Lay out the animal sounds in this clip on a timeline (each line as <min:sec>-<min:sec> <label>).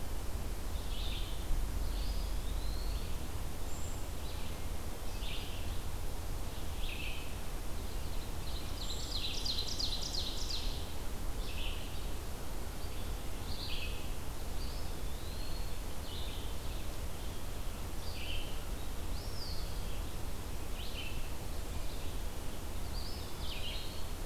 0:00.0-0:24.0 Red-eyed Vireo (Vireo olivaceus)
0:01.8-0:03.4 Eastern Wood-Pewee (Contopus virens)
0:03.6-0:04.0 Brown Creeper (Certhia americana)
0:08.5-0:11.1 Ovenbird (Seiurus aurocapilla)
0:14.3-0:16.1 Eastern Wood-Pewee (Contopus virens)
0:18.9-0:20.0 Eastern Wood-Pewee (Contopus virens)
0:22.6-0:24.3 Eastern Wood-Pewee (Contopus virens)